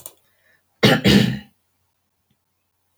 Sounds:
Throat clearing